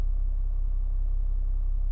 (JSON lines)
{"label": "anthrophony, boat engine", "recorder": "SoundTrap 300"}